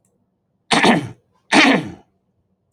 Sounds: Throat clearing